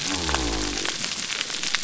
{"label": "biophony", "recorder": "SoundTrap 300"}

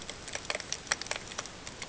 {"label": "ambient", "recorder": "HydroMoth"}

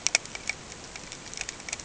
{"label": "ambient", "recorder": "HydroMoth"}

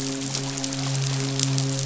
{"label": "biophony, midshipman", "recorder": "SoundTrap 500"}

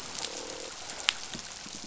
{"label": "biophony, croak", "recorder": "SoundTrap 500"}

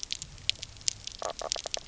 {"label": "biophony, knock croak", "recorder": "SoundTrap 300"}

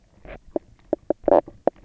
{"label": "biophony, knock croak", "recorder": "SoundTrap 300"}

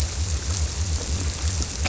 {"label": "biophony", "recorder": "SoundTrap 300"}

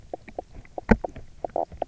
{"label": "biophony, knock croak", "recorder": "SoundTrap 300"}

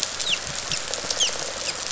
{"label": "biophony, dolphin", "recorder": "SoundTrap 500"}
{"label": "biophony", "recorder": "SoundTrap 500"}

